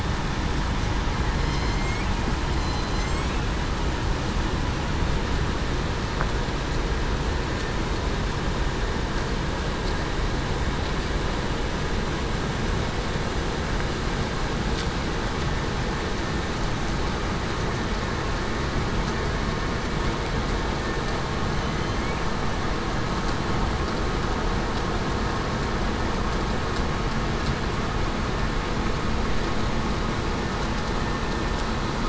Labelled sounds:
1.4	2.0	killer whale, southern resident, 2.0 to 5.3 kHz
2.6	3.3	killer whale, southern resident, 4.0 to 7.9 kHz

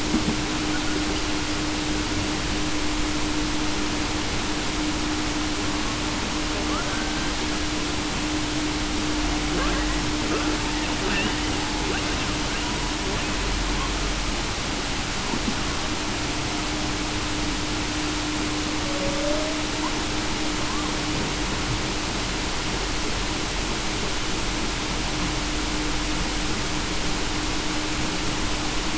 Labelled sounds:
19.0	19.6	humpback whale, 0.52 to 0.66 kHz

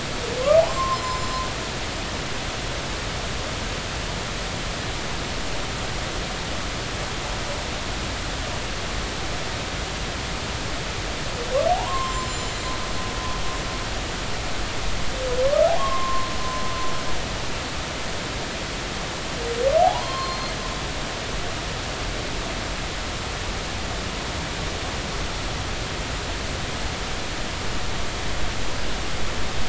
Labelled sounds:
0.6	1.4	humpback whale, 0.80 to 7.4 kHz
11.7	12.7	humpback whale, 0.80 to 7.5 kHz
15.8	16.3	humpback whale, 0.96 to 1.2 kHz
19.8	20.5	humpback whale, 0.80 to 4.3 kHz

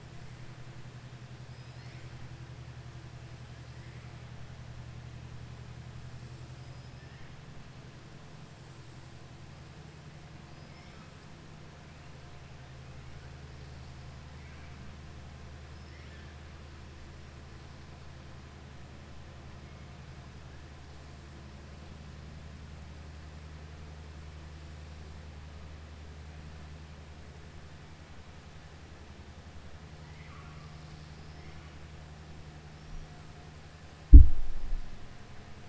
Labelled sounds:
10.5	11.1	killer whale, southern resident, 1.2 to 5.5 kHz
14.3	14.7	killer whale, southern resident, 1.2 to 3.2 kHz
15.8	16.3	killer whale, southern resident, 1.6 to 4.2 kHz
30.0	30.7	killer whale, southern resident, 1.1 to 3.0 kHz

